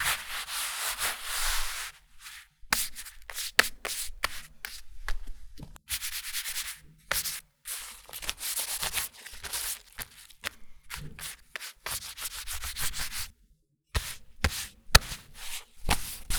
Does the scrubbing end at any point?
no